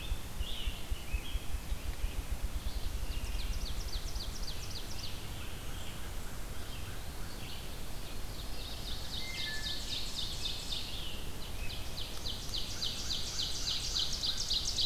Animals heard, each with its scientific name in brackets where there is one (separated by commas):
American Crow (Corvus brachyrhynchos), Red-eyed Vireo (Vireo olivaceus), Scarlet Tanager (Piranga olivacea), Ruffed Grouse (Bonasa umbellus), Ovenbird (Seiurus aurocapilla), Eastern Wood-Pewee (Contopus virens), Wood Thrush (Hylocichla mustelina)